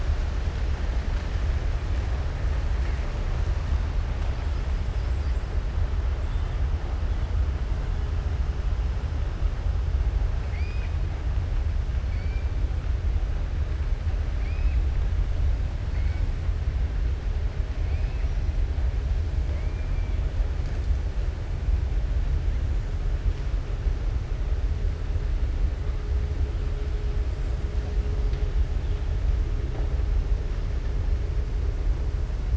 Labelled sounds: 10.4	10.9	killer whale, southern resident, 1.8 to 3.2 kHz
12.1	12.5	killer whale, southern resident, 1.5 to 3.1 kHz
14.3	14.8	killer whale, southern resident, 2.0 to 3.3 kHz
17.8	18.3	killer whale, southern resident, 1.9 to 2.8 kHz
19.4	20.1	killer whale, southern resident, 1.7 to 2.4 kHz

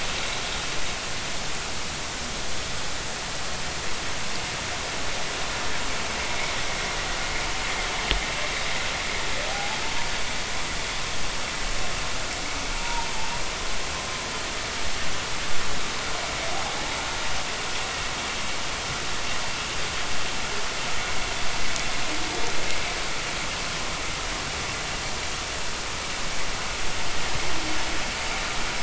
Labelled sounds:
9.5	9.8	humpback whale, 0.80 to 0.93 kHz
12.8	13.1	humpback whale, 0.86 to 0.99 kHz

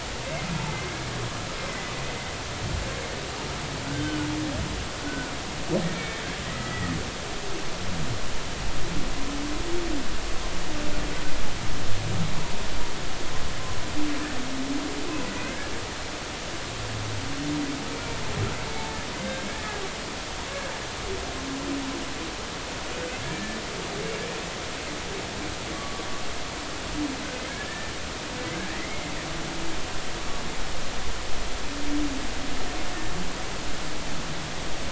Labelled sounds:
0.7	1.9	humpback whale, 1.9 to 2.2 kHz
3.8	5.4	humpback whale, 1.3 to 3.2 kHz
6.0	7.2	humpback whale, 1.2 to 2.3 kHz
15.3	15.7	humpback whale, 1.5 to 2.2 kHz
19.5	19.8	humpback whale, 1.6 to 1.8 kHz
23.2	23.6	humpback whale, 1.7 to 1.8 kHz
25.7	26.1	humpback whale, 1.1 to 1.2 kHz
27.5	27.9	humpback whale, 1.6 to 1.8 kHz

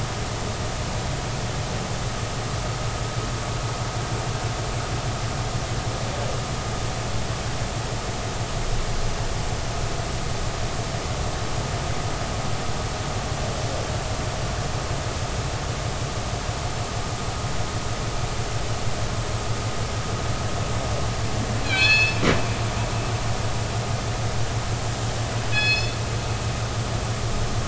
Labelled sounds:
21.6	22.2	killer whale, northern resident, G clan, call N24ii, 1.5 to 5.3 kHz
25.5	26.0	killer whale, northern resident, G clan, call N24ii, 1.6 to 5.3 kHz

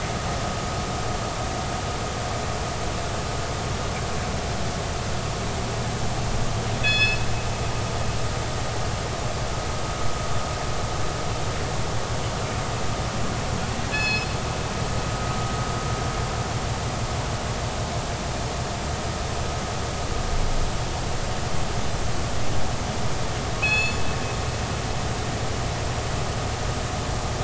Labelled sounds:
6.8	7.2	killer whale, northern resident, G clan, call N24ii, 1.6 to 5.2 kHz
13.9	14.3	killer whale, northern resident, G clan, call N24ii, 1.6 to 5.2 kHz
23.6	24.0	killer whale, northern resident, G clan, call N24ii, 2.4 to 7.0 kHz

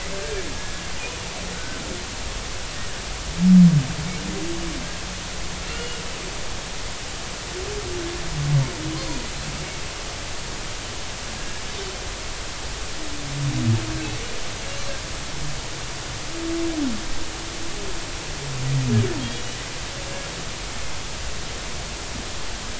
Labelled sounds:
0.2	0.8	humpback whale, 1.6 to 1.8 kHz
1.5	1.8	humpback whale, 1.4 to 1.6 kHz
5.7	6.0	humpback whale, 2.7 to 2.9 kHz
9.0	9.3	humpback whale, 4.1 to 4.5 kHz

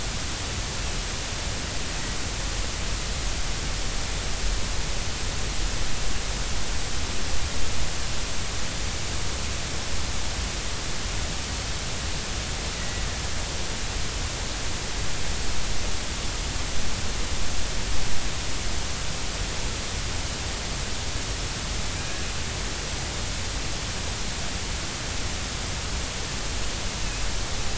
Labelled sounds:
12.8	13.0	killer whale, Bigg's (transient), 1.9 to 2.0 kHz

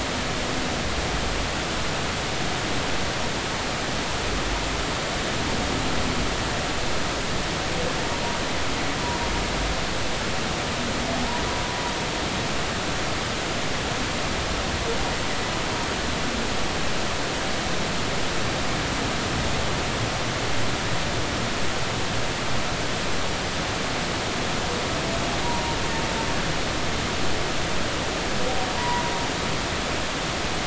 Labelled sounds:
28.8	29.0	humpback whale, 0.90 to 2.0 kHz

